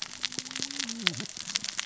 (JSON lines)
{"label": "biophony, cascading saw", "recorder": "SoundTrap 600 or HydroMoth"}